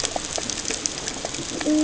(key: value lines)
label: ambient
recorder: HydroMoth